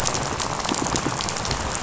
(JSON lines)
{"label": "biophony, rattle", "recorder": "SoundTrap 500"}